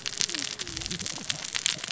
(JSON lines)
{"label": "biophony, cascading saw", "recorder": "SoundTrap 600 or HydroMoth"}